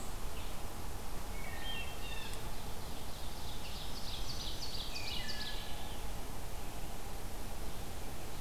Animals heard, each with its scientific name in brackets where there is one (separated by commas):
Wood Thrush (Hylocichla mustelina), Blue Jay (Cyanocitta cristata), Ovenbird (Seiurus aurocapilla)